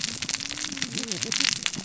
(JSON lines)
{"label": "biophony, cascading saw", "recorder": "SoundTrap 600 or HydroMoth"}